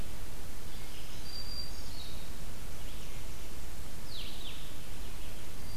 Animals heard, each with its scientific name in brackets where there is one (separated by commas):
Blue-headed Vireo (Vireo solitarius), Black-throated Green Warbler (Setophaga virens)